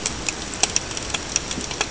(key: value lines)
label: ambient
recorder: HydroMoth